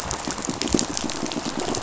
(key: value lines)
label: biophony, pulse
recorder: SoundTrap 500